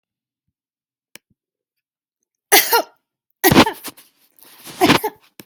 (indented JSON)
{
  "expert_labels": [
    {
      "quality": "good",
      "cough_type": "dry",
      "dyspnea": false,
      "wheezing": false,
      "stridor": false,
      "choking": false,
      "congestion": false,
      "nothing": true,
      "diagnosis": "upper respiratory tract infection",
      "severity": "mild"
    }
  ],
  "age": 38,
  "gender": "female",
  "respiratory_condition": false,
  "fever_muscle_pain": false,
  "status": "symptomatic"
}